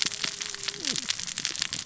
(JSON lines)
{"label": "biophony, cascading saw", "recorder": "SoundTrap 600 or HydroMoth"}